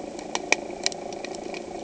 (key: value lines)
label: anthrophony, boat engine
recorder: HydroMoth